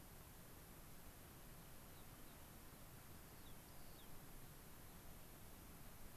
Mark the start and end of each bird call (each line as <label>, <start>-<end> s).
Rock Wren (Salpinctes obsoletus), 3.2-4.1 s